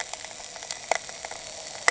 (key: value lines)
label: anthrophony, boat engine
recorder: HydroMoth